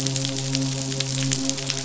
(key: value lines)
label: biophony, midshipman
recorder: SoundTrap 500